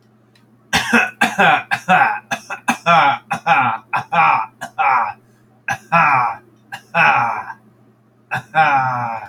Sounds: Cough